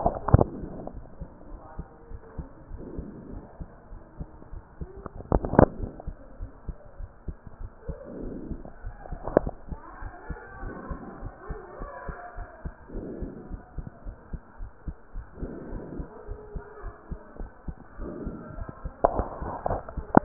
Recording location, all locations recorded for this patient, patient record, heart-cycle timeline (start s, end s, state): pulmonary valve (PV)
pulmonary valve (PV)
#Age: nan
#Sex: Female
#Height: nan
#Weight: nan
#Pregnancy status: True
#Murmur: Absent
#Murmur locations: nan
#Most audible location: nan
#Systolic murmur timing: nan
#Systolic murmur shape: nan
#Systolic murmur grading: nan
#Systolic murmur pitch: nan
#Systolic murmur quality: nan
#Diastolic murmur timing: nan
#Diastolic murmur shape: nan
#Diastolic murmur grading: nan
#Diastolic murmur pitch: nan
#Diastolic murmur quality: nan
#Outcome: Normal
#Campaign: 2015 screening campaign
0.00	9.86	unannotated
9.86	10.00	diastole
10.00	10.12	S1
10.12	10.26	systole
10.26	10.38	S2
10.38	10.60	diastole
10.60	10.74	S1
10.74	10.88	systole
10.88	11.02	S2
11.02	11.20	diastole
11.20	11.32	S1
11.32	11.46	systole
11.46	11.60	S2
11.60	11.78	diastole
11.78	11.88	S1
11.88	12.05	systole
12.05	12.14	S2
12.14	12.35	diastole
12.35	12.45	S1
12.45	12.61	systole
12.61	12.71	S2
12.71	12.92	diastole
12.92	13.04	S1
13.04	13.18	systole
13.18	13.30	S2
13.30	13.50	diastole
13.50	13.62	S1
13.62	13.74	systole
13.74	13.88	S2
13.88	14.05	diastole
14.05	14.15	S1
14.15	14.30	systole
14.30	14.40	S2
14.40	14.59	diastole
14.59	14.70	S1
14.70	14.86	systole
14.86	14.93	S2
14.93	15.13	diastole
15.13	15.22	S1
15.22	15.40	systole
15.40	15.49	S2
15.49	15.70	diastole
15.70	15.84	S1
15.84	15.94	systole
15.94	16.08	S2
16.08	16.28	diastole
16.28	16.38	S1
16.38	16.54	systole
16.54	16.62	S2
16.62	16.82	diastole
16.82	16.92	S1
16.92	17.09	systole
17.09	17.18	S2
17.18	17.38	diastole
17.38	17.49	S1
17.49	17.64	systole
17.64	17.74	S2
17.74	17.98	diastole
17.98	18.14	S1
18.14	18.24	systole
18.24	18.38	S2
18.38	18.56	diastole
18.56	20.24	unannotated